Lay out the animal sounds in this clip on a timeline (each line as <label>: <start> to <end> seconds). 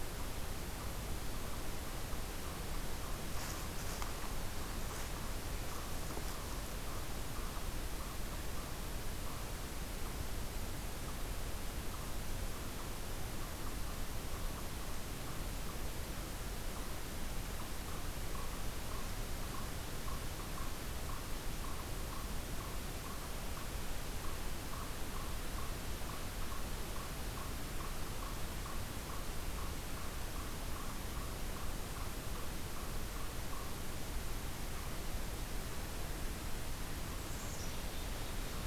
Eastern Chipmunk (Tamias striatus): 0.0 to 35.1 seconds
Black-capped Chickadee (Poecile atricapillus): 37.0 to 38.5 seconds